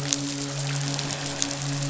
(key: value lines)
label: biophony, midshipman
recorder: SoundTrap 500